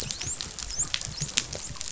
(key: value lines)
label: biophony, dolphin
recorder: SoundTrap 500